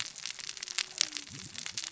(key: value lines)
label: biophony, cascading saw
recorder: SoundTrap 600 or HydroMoth